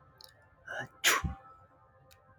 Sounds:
Sneeze